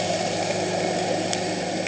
{"label": "anthrophony, boat engine", "recorder": "HydroMoth"}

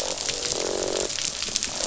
{"label": "biophony, croak", "recorder": "SoundTrap 500"}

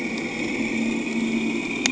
{"label": "anthrophony, boat engine", "recorder": "HydroMoth"}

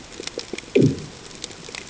{"label": "anthrophony, bomb", "recorder": "HydroMoth"}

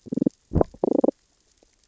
{"label": "biophony, damselfish", "recorder": "SoundTrap 600 or HydroMoth"}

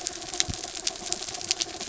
{"label": "anthrophony, mechanical", "recorder": "SoundTrap 300"}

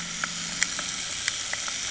{"label": "anthrophony, boat engine", "recorder": "HydroMoth"}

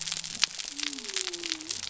{"label": "biophony", "recorder": "SoundTrap 300"}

